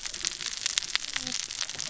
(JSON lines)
{"label": "biophony, cascading saw", "recorder": "SoundTrap 600 or HydroMoth"}